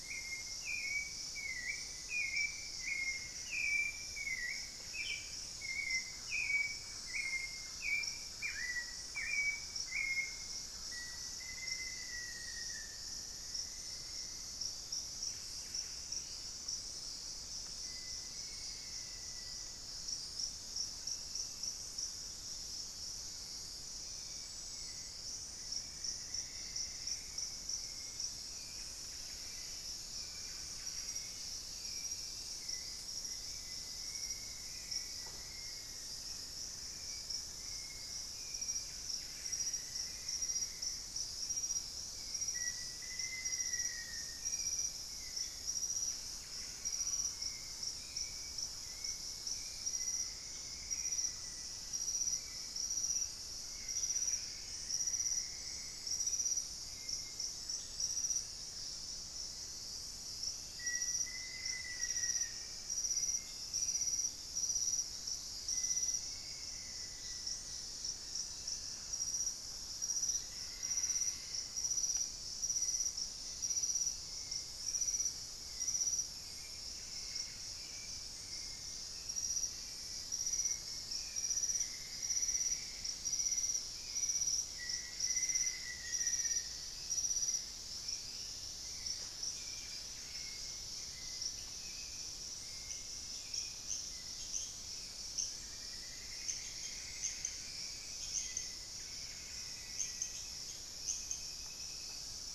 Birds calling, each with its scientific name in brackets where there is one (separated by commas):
Black-faced Antthrush (Formicarius analis), Buff-breasted Wren (Cantorchilus leucotis), Elegant Woodcreeper (Xiphorhynchus elegans), Plumbeous Antbird (Myrmelastes hyperythrus), Hauxwell's Thrush (Turdus hauxwelli), Thrush-like Wren (Campylorhynchus turdinus), Buff-throated Woodcreeper (Xiphorhynchus guttatus)